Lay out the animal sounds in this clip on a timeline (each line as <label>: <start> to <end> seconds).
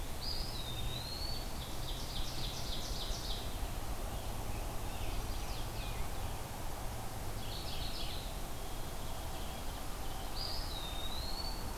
Eastern Wood-Pewee (Contopus virens): 0.1 to 1.6 seconds
Ovenbird (Seiurus aurocapilla): 1.4 to 3.5 seconds
Scarlet Tanager (Piranga olivacea): 4.0 to 6.2 seconds
Chestnut-sided Warbler (Setophaga pensylvanica): 4.5 to 6.0 seconds
Mourning Warbler (Geothlypis philadelphia): 7.2 to 8.5 seconds
White-throated Sparrow (Zonotrichia albicollis): 8.3 to 10.1 seconds
Eastern Wood-Pewee (Contopus virens): 10.3 to 11.8 seconds